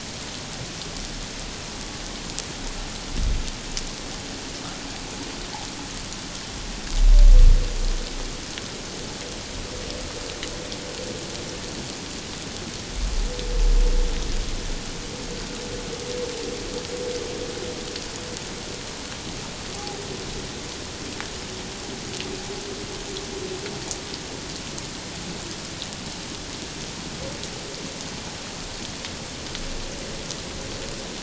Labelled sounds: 19.7	20.0	humpback whale, 0.78 to 0.88 kHz

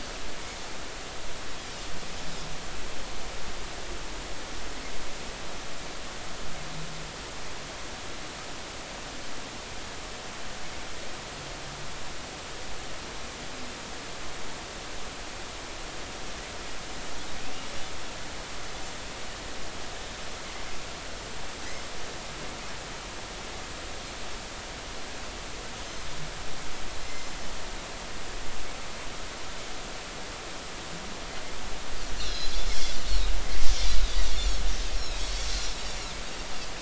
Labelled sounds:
27.0	27.3	Pacific white-sided dolphin, 2.0 to 2.1 kHz
32.2	32.5	Pacific white-sided dolphin, 3.8 to 4.4 kHz
34.2	34.4	Pacific white-sided dolphin, 5.5 to 5.7 kHz

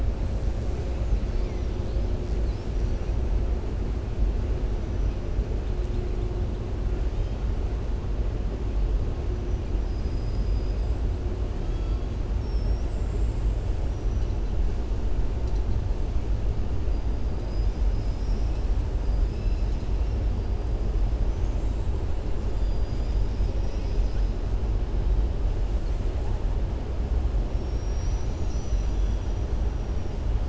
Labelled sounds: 17.3	18.7	killer whale, southern resident, 4.0 to 5.8 kHz
21.2	22.1	killer whale, southern resident, 6.0 to 8.0 kHz
27.5	29.5	killer whale, southern resident, 3.3 to 6.8 kHz

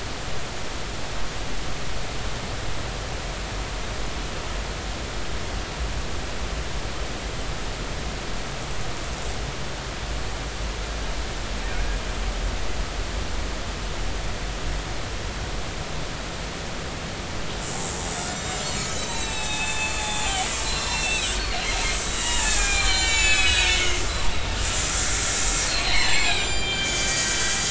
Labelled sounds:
18.3	21.4	killer whale, Bigg's (transient), 0.80 to 8.0 kHz
22.1	24.0	killer whale, Bigg's (transient), 0.83 to 7.9 kHz
25.7	27.3	killer whale, Bigg's (transient), 1.5 to 7.9 kHz

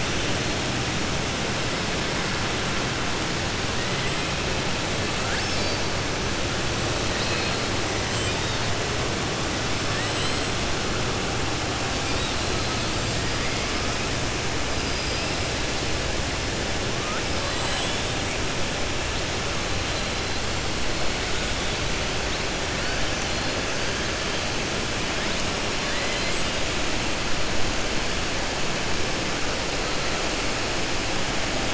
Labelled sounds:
7.1	7.6	killer whale, southern resident, 1.8 to 5.1 kHz
8.1	8.6	killer whale, southern resident, 2.4 to 4.7 kHz
17.5	18.0	killer whale, southern resident, 7.2 to 8.0 kHz

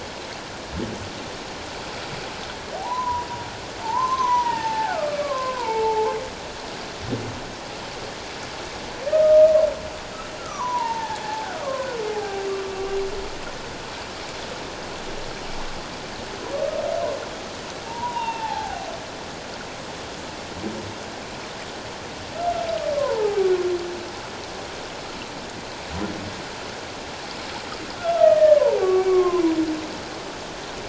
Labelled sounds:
2.8	6.1	humpback whale, 0.78 to 6.4 kHz
9.2	9.5	humpback whale, 1.2 to 1.3 kHz
10.4	12.5	humpback whale, 0.78 to 6.2 kHz
17.9	18.9	humpback whale, 0.78 to 3.8 kHz
22.9	23.4	humpback whale, 0.78 to 1.1 kHz
28.2	29.4	humpback whale, 0.88 to 2.3 kHz

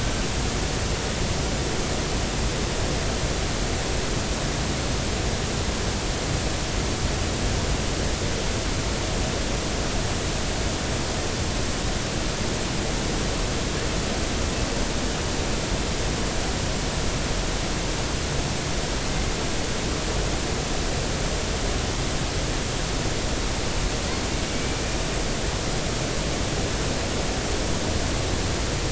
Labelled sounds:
24.4	24.8	killer whale, Bigg's (transient), 2.2 to 2.4 kHz

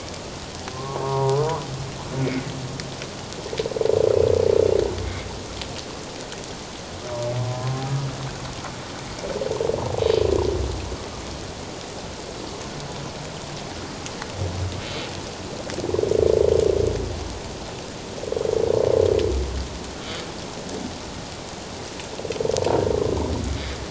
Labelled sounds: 0.7	1.4	humpback whale, 0.78 to 1.2 kHz
2.2	2.5	humpback whale, 1.9 to 2.3 kHz

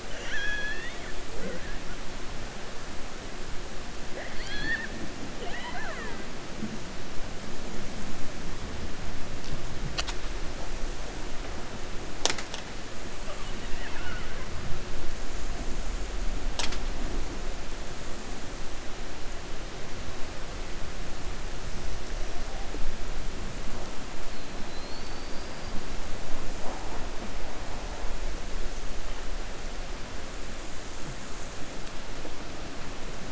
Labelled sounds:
0.0	1.1	killer whale, 0.66 to 7.0 kHz
5.3	6.2	killer whale, 0.42 to 4.1 kHz
13.6	14.5	killer whale, 0.92 to 3.0 kHz

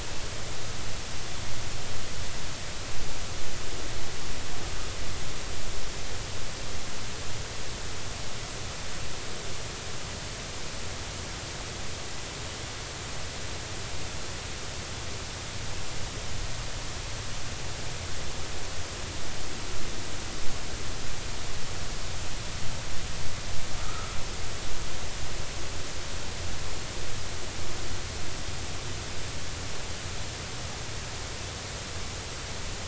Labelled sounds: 23.8	24.2	humpback whale, 1.2 to 1.4 kHz

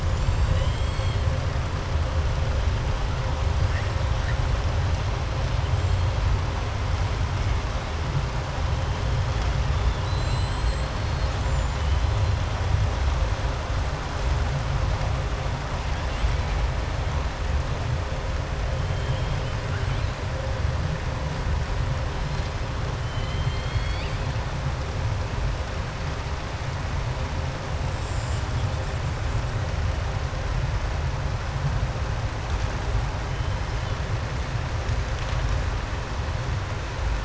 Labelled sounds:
0.0	1.2	killer whale, southern resident, 2.0 to 7.9 kHz
9.9	10.9	killer whale, southern resident, 2.8 to 8.0 kHz
11.2	11.8	killer whale, southern resident, 6.6 to 8.0 kHz
23.0	24.3	killer whale, southern resident, 2.0 to 4.8 kHz

